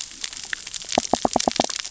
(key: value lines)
label: biophony, knock
recorder: SoundTrap 600 or HydroMoth